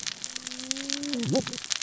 {"label": "biophony, cascading saw", "recorder": "SoundTrap 600 or HydroMoth"}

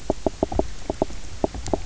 {"label": "biophony, knock croak", "recorder": "SoundTrap 300"}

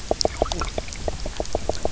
{"label": "biophony, knock croak", "recorder": "SoundTrap 300"}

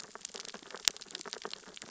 {"label": "biophony, sea urchins (Echinidae)", "recorder": "SoundTrap 600 or HydroMoth"}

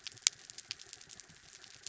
{"label": "anthrophony, mechanical", "recorder": "SoundTrap 300"}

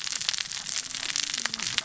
{"label": "biophony, cascading saw", "recorder": "SoundTrap 600 or HydroMoth"}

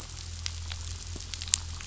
{"label": "anthrophony, boat engine", "recorder": "SoundTrap 500"}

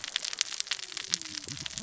{"label": "biophony, cascading saw", "recorder": "SoundTrap 600 or HydroMoth"}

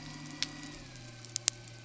{"label": "anthrophony, boat engine", "recorder": "SoundTrap 300"}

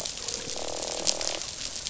{"label": "biophony, croak", "recorder": "SoundTrap 500"}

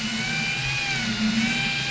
{"label": "anthrophony, boat engine", "recorder": "SoundTrap 500"}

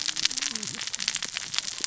{"label": "biophony, cascading saw", "recorder": "SoundTrap 600 or HydroMoth"}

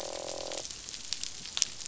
{"label": "biophony, croak", "recorder": "SoundTrap 500"}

